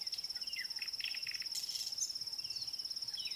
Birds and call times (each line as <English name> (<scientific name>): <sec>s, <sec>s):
Red-backed Scrub-Robin (Cercotrichas leucophrys): 3.3s